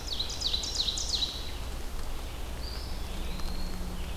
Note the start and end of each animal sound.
0.0s-1.5s: Ovenbird (Seiurus aurocapilla)
0.0s-4.2s: Red-eyed Vireo (Vireo olivaceus)
2.3s-4.0s: Eastern Wood-Pewee (Contopus virens)

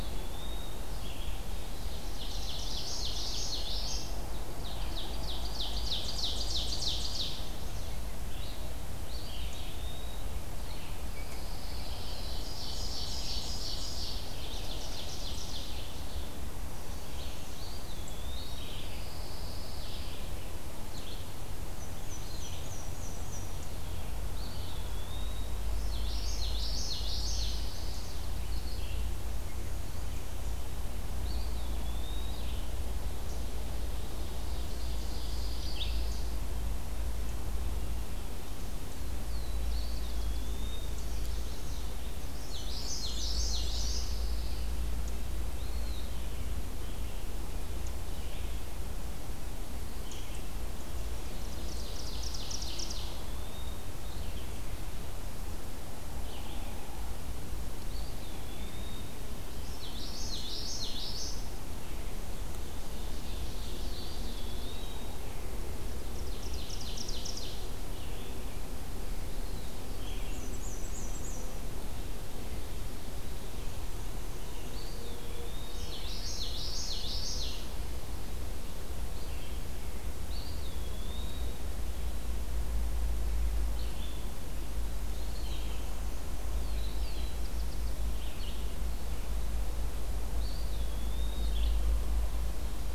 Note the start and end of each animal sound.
0.0s-0.8s: Eastern Wood-Pewee (Contopus virens)
0.0s-36.1s: Red-eyed Vireo (Vireo olivaceus)
1.7s-4.2s: Ovenbird (Seiurus aurocapilla)
2.5s-4.1s: Common Yellowthroat (Geothlypis trichas)
4.5s-7.6s: Ovenbird (Seiurus aurocapilla)
8.8s-10.3s: Eastern Wood-Pewee (Contopus virens)
10.5s-12.4s: Rose-breasted Grosbeak (Pheucticus ludovicianus)
11.0s-12.3s: Pine Warbler (Setophaga pinus)
12.1s-16.1s: Ovenbird (Seiurus aurocapilla)
17.2s-18.7s: Eastern Wood-Pewee (Contopus virens)
18.8s-20.2s: Pine Warbler (Setophaga pinus)
21.5s-23.8s: Black-and-white Warbler (Mniotilta varia)
24.1s-25.6s: Eastern Wood-Pewee (Contopus virens)
25.9s-27.5s: Common Yellowthroat (Geothlypis trichas)
27.0s-28.2s: Pine Warbler (Setophaga pinus)
31.1s-32.3s: Eastern Wood-Pewee (Contopus virens)
33.7s-35.7s: Ovenbird (Seiurus aurocapilla)
34.7s-36.5s: Pine Warbler (Setophaga pinus)
38.9s-40.8s: Black-throated Blue Warbler (Setophaga caerulescens)
39.7s-41.0s: Eastern Wood-Pewee (Contopus virens)
40.8s-42.0s: Chestnut-sided Warbler (Setophaga pensylvanica)
42.1s-43.9s: Black-and-white Warbler (Mniotilta varia)
42.3s-44.0s: Common Yellowthroat (Geothlypis trichas)
43.8s-44.7s: Pine Warbler (Setophaga pinus)
45.5s-46.2s: Eastern Wood-Pewee (Contopus virens)
46.0s-91.8s: Red-eyed Vireo (Vireo olivaceus)
51.1s-53.2s: Ovenbird (Seiurus aurocapilla)
52.8s-53.9s: Eastern Wood-Pewee (Contopus virens)
57.6s-59.2s: Eastern Wood-Pewee (Contopus virens)
59.5s-61.6s: Common Yellowthroat (Geothlypis trichas)
62.5s-64.5s: Ovenbird (Seiurus aurocapilla)
63.8s-65.3s: Eastern Wood-Pewee (Contopus virens)
65.9s-67.7s: Ovenbird (Seiurus aurocapilla)
69.1s-69.9s: Eastern Wood-Pewee (Contopus virens)
69.9s-71.5s: Black-and-white Warbler (Mniotilta varia)
74.5s-75.9s: Eastern Wood-Pewee (Contopus virens)
75.7s-77.7s: Common Yellowthroat (Geothlypis trichas)
80.1s-81.6s: Eastern Wood-Pewee (Contopus virens)
84.8s-85.7s: Eastern Wood-Pewee (Contopus virens)
86.3s-88.2s: Black-throated Blue Warbler (Setophaga caerulescens)
90.2s-91.7s: Eastern Wood-Pewee (Contopus virens)

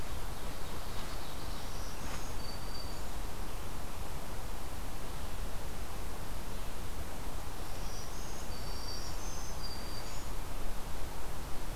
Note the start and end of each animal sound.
0.0s-1.6s: Ovenbird (Seiurus aurocapilla)
1.4s-3.2s: Black-throated Green Warbler (Setophaga virens)
7.6s-10.3s: Black-throated Green Warbler (Setophaga virens)

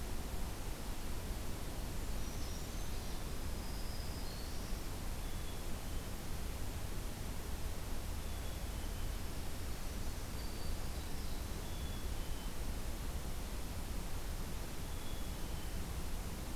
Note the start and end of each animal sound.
2.0s-3.1s: Brown Creeper (Certhia americana)
3.3s-4.9s: Black-throated Green Warbler (Setophaga virens)
5.2s-6.2s: Black-capped Chickadee (Poecile atricapillus)
8.1s-9.2s: Black-capped Chickadee (Poecile atricapillus)
9.9s-11.2s: Black-throated Green Warbler (Setophaga virens)
11.5s-12.6s: Black-capped Chickadee (Poecile atricapillus)
14.8s-15.8s: Black-capped Chickadee (Poecile atricapillus)

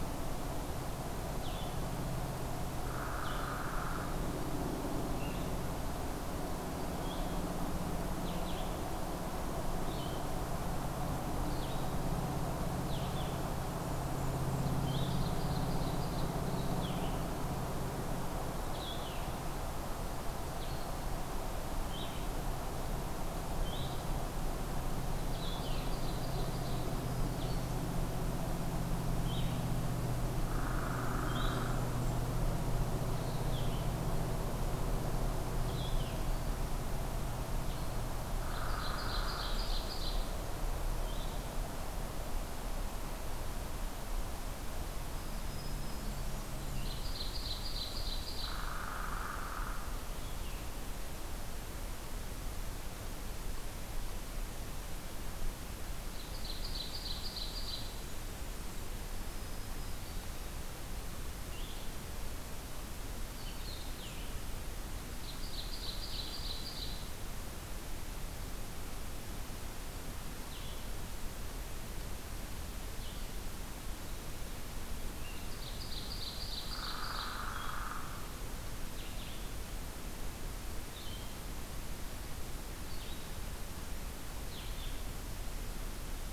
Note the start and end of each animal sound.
1.3s-27.6s: Blue-headed Vireo (Vireo solitarius)
2.9s-4.1s: Hairy Woodpecker (Dryobates villosus)
13.4s-14.5s: Blackburnian Warbler (Setophaga fusca)
14.7s-16.4s: Ovenbird (Seiurus aurocapilla)
25.5s-27.0s: Ovenbird (Seiurus aurocapilla)
28.9s-41.6s: Blue-headed Vireo (Vireo solitarius)
30.5s-31.7s: Hairy Woodpecker (Dryobates villosus)
30.9s-32.3s: Blackburnian Warbler (Setophaga fusca)
35.2s-36.8s: Black-throated Green Warbler (Setophaga virens)
38.4s-39.6s: Hairy Woodpecker (Dryobates villosus)
38.7s-40.3s: Ovenbird (Seiurus aurocapilla)
45.0s-46.6s: Black-throated Green Warbler (Setophaga virens)
46.6s-50.7s: Blue-headed Vireo (Vireo solitarius)
46.7s-48.6s: Ovenbird (Seiurus aurocapilla)
48.4s-50.0s: Hairy Woodpecker (Dryobates villosus)
56.1s-58.1s: Ovenbird (Seiurus aurocapilla)
57.8s-59.0s: Blackburnian Warbler (Setophaga fusca)
59.2s-60.4s: Black-throated Green Warbler (Setophaga virens)
61.5s-64.4s: Blue-headed Vireo (Vireo solitarius)
65.3s-67.1s: Ovenbird (Seiurus aurocapilla)
70.3s-85.0s: Blue-headed Vireo (Vireo solitarius)
75.4s-77.4s: Ovenbird (Seiurus aurocapilla)
76.6s-78.4s: Hairy Woodpecker (Dryobates villosus)

